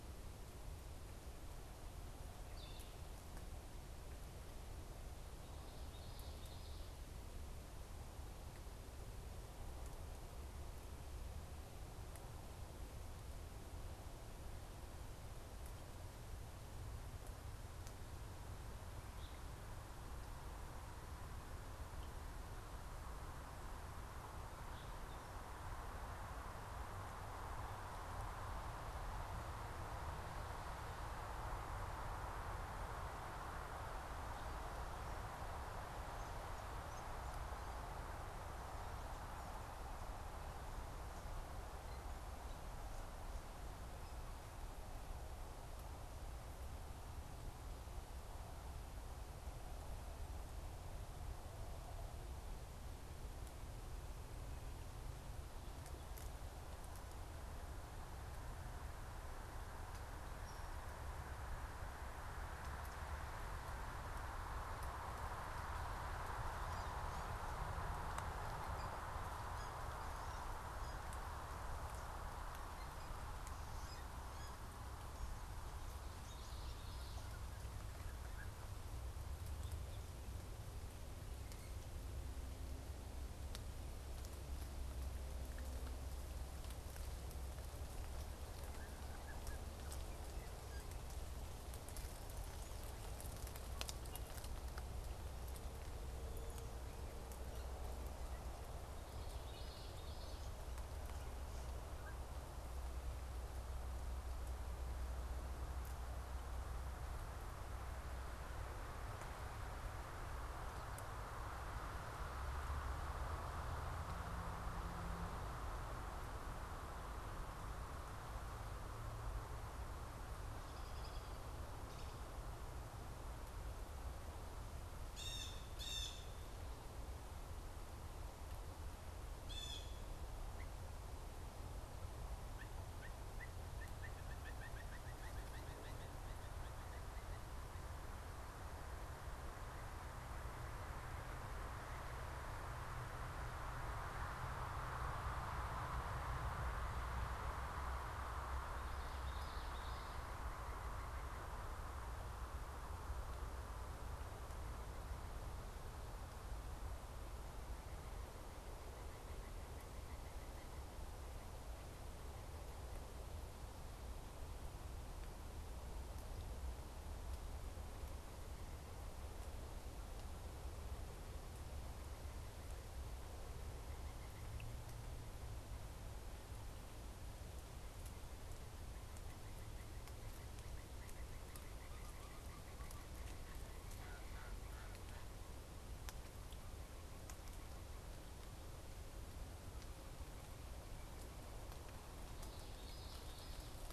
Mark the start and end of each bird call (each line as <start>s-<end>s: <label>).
2.4s-3.0s: unidentified bird
5.5s-6.9s: Common Yellowthroat (Geothlypis trichas)
65.9s-75.1s: unidentified bird
76.0s-77.5s: unidentified bird
99.0s-100.5s: Common Yellowthroat (Geothlypis trichas)
120.3s-122.5s: unidentified bird
124.9s-126.4s: Blue Jay (Cyanocitta cristata)
129.3s-130.1s: Blue Jay (Cyanocitta cristata)
130.4s-137.8s: Blue Jay (Cyanocitta cristata)
148.5s-150.4s: Common Yellowthroat (Geothlypis trichas)
158.8s-161.1s: Blue Jay (Cyanocitta cristata)
173.7s-174.6s: Blue Jay (Cyanocitta cristata)
178.4s-185.5s: Blue Jay (Cyanocitta cristata)
192.1s-193.9s: Common Yellowthroat (Geothlypis trichas)